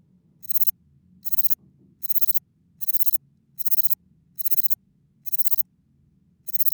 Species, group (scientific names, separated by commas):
Platycleis grisea, Orthoptera